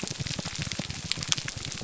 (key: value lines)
label: biophony, grouper groan
recorder: SoundTrap 300